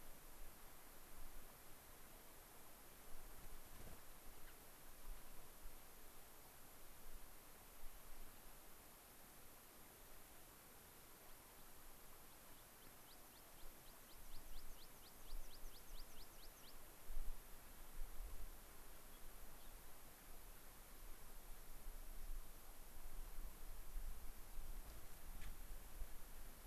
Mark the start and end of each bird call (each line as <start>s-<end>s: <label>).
4.5s-4.6s: Gray-crowned Rosy-Finch (Leucosticte tephrocotis)
12.2s-16.8s: American Pipit (Anthus rubescens)
19.1s-19.7s: Gray-crowned Rosy-Finch (Leucosticte tephrocotis)